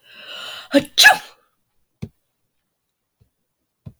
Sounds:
Sneeze